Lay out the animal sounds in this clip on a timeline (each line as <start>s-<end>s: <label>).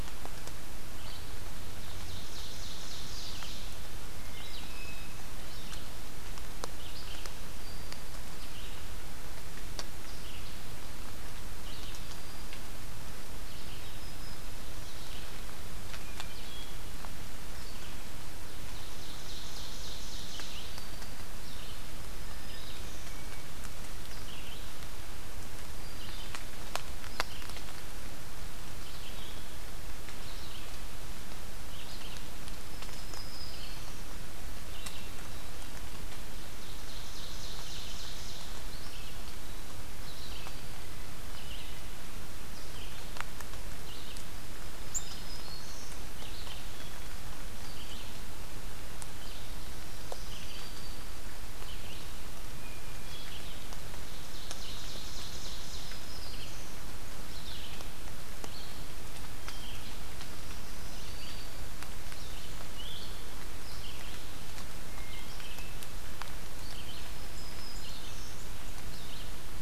0.7s-58.0s: Red-eyed Vireo (Vireo olivaceus)
1.6s-4.1s: Ovenbird (Seiurus aurocapilla)
4.1s-5.1s: Hermit Thrush (Catharus guttatus)
7.2s-8.2s: Black-throated Green Warbler (Setophaga virens)
11.9s-12.6s: Black-throated Green Warbler (Setophaga virens)
13.6s-14.9s: Black-throated Green Warbler (Setophaga virens)
15.9s-16.7s: Hermit Thrush (Catharus guttatus)
18.4s-20.9s: Ovenbird (Seiurus aurocapilla)
20.3s-21.2s: Black-throated Green Warbler (Setophaga virens)
21.8s-23.2s: Black-throated Green Warbler (Setophaga virens)
22.2s-23.5s: Hermit Thrush (Catharus guttatus)
25.6s-26.4s: Black-throated Green Warbler (Setophaga virens)
32.3s-34.3s: Black-throated Green Warbler (Setophaga virens)
36.2s-38.9s: Ovenbird (Seiurus aurocapilla)
40.0s-41.0s: Black-throated Green Warbler (Setophaga virens)
41.3s-42.1s: Hermit Thrush (Catharus guttatus)
44.4s-46.1s: Black-throated Green Warbler (Setophaga virens)
49.5s-51.3s: Black-throated Green Warbler (Setophaga virens)
52.5s-53.5s: Hermit Thrush (Catharus guttatus)
54.0s-56.2s: Ovenbird (Seiurus aurocapilla)
55.4s-56.8s: Black-throated Green Warbler (Setophaga virens)
58.4s-69.4s: Red-eyed Vireo (Vireo olivaceus)
59.3s-60.1s: Hermit Thrush (Catharus guttatus)
60.3s-61.8s: Black-throated Green Warbler (Setophaga virens)
64.8s-65.8s: Hermit Thrush (Catharus guttatus)
66.8s-68.6s: Black-throated Green Warbler (Setophaga virens)